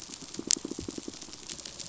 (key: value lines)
label: biophony, pulse
recorder: SoundTrap 500